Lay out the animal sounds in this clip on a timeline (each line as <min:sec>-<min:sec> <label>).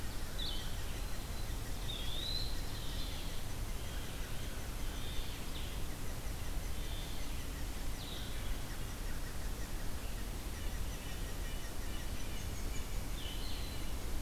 0:00.3-0:00.8 Red-eyed Vireo (Vireo olivaceus)
0:00.6-0:02.7 Eastern Wood-Pewee (Contopus virens)
0:02.5-0:08.6 Gray Catbird (Dumetella carolinensis)
0:02.6-0:13.3 unidentified call
0:10.5-0:14.2 Red-breasted Nuthatch (Sitta canadensis)